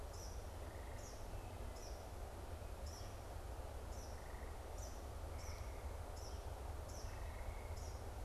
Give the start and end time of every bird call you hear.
0.0s-8.2s: Eastern Kingbird (Tyrannus tyrannus)

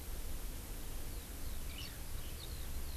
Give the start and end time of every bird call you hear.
1.1s-3.0s: Eurasian Skylark (Alauda arvensis)

